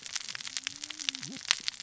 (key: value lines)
label: biophony, cascading saw
recorder: SoundTrap 600 or HydroMoth